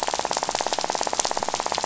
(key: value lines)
label: biophony, rattle
recorder: SoundTrap 500